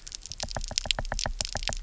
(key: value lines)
label: biophony, knock
recorder: SoundTrap 300